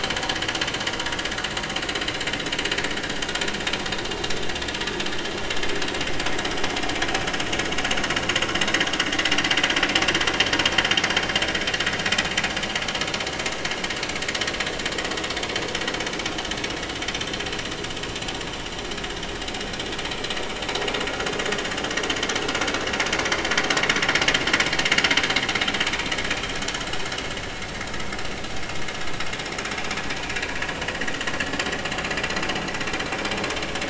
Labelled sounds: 0.9	1.1	vessel noise, 5.0 to 5.2 kHz

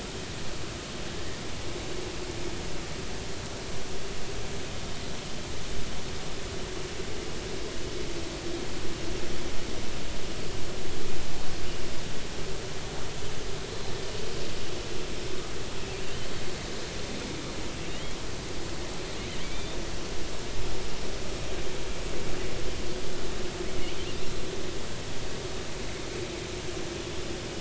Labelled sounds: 17.9	18.2	killer whale, offshore, 2.8 to 3.4 kHz
19.4	19.8	killer whale, offshore, 2.2 to 3.7 kHz

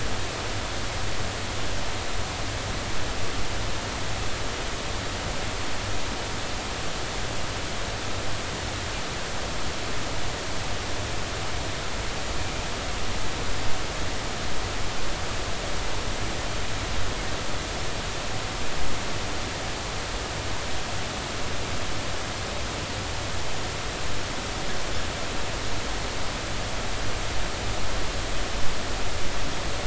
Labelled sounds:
12.4	12.6	killer whale, 2.3 to 2.5 kHz

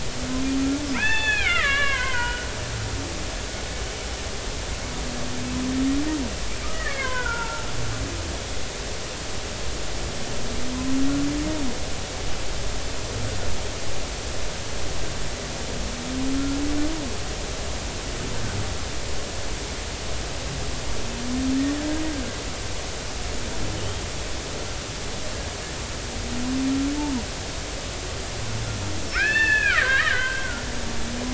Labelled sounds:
0.9	2.5	killer whale, Bigg's (transient), 0.80 to 4.5 kHz
6.6	7.7	killer whale, Bigg's (transient), 0.86 to 2.3 kHz
16.3	16.6	humpback whale, 1.3 to 1.4 kHz
29.1	30.6	killer whale, Bigg's (transient), 0.99 to 4.5 kHz

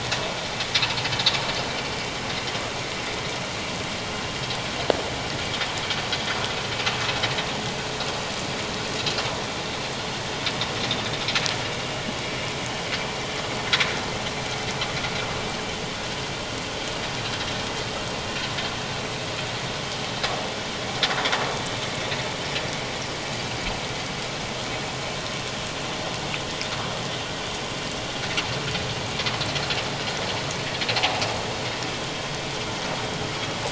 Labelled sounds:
6.1	6.4	vessel noise, 3.3 to 3.5 kHz
31.0	31.2	vessel noise, 0.78 to 0.94 kHz

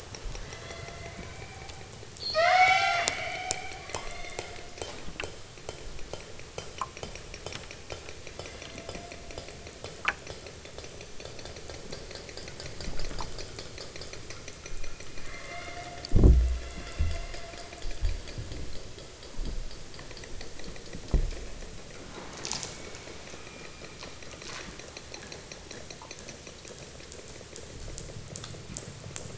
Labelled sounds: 0.4	3.2	killer whale, southern Alaska resident, 0.37 to 8.0 kHz
3.9	4.6	killer whale, southern Alaska resident, 0.60 to 6.1 kHz
8.3	9.0	killer whale, southern Alaska resident, 1.5 to 5.4 kHz
15.2	16.0	killer whale, southern Alaska resident, 0.78 to 5.6 kHz
16.5	17.4	killer whale, southern Alaska resident, 1.1 to 5.9 kHz
22.6	24.5	killer whale, southern Alaska resident, 0.64 to 2.7 kHz

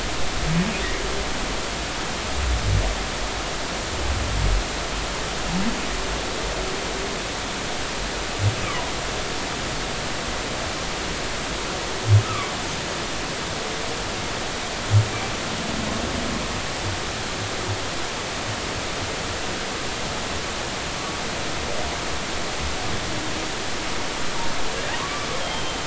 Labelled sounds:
8.6	8.9	humpback whale, 0.93 to 1.3 kHz
12.2	12.5	humpback whale, 0.99 to 1.4 kHz
25.0	25.8	humpback whale, 1.0 to 3.3 kHz

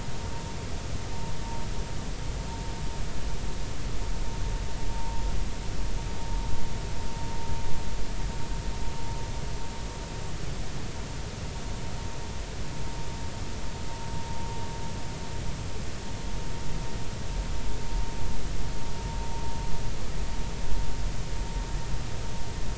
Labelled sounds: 4.9	5.2	vessel noise, 0.86 to 1.0 kHz

